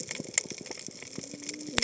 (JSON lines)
{"label": "biophony, cascading saw", "recorder": "HydroMoth"}